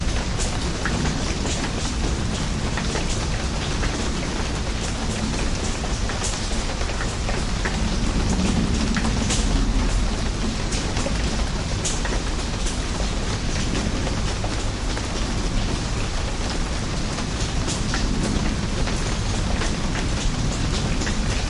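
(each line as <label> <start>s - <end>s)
Fast, rhythmic splashing of water. 0.0s - 21.5s
Rain taps dully and rhythmically against a muffled surface. 0.0s - 21.5s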